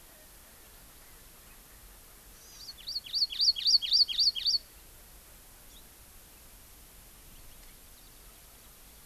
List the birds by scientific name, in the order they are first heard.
Chlorodrepanis virens